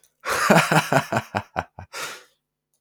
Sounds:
Laughter